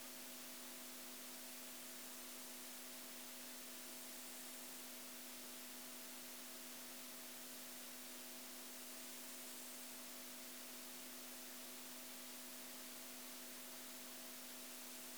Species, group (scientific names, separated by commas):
Chorthippus biguttulus, Orthoptera